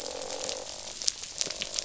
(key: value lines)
label: biophony, croak
recorder: SoundTrap 500